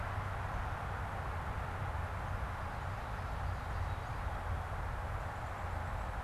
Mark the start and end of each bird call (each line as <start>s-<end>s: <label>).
2.7s-4.7s: Ovenbird (Seiurus aurocapilla)
3.7s-4.5s: Black-capped Chickadee (Poecile atricapillus)